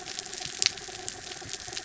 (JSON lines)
{"label": "anthrophony, mechanical", "recorder": "SoundTrap 300"}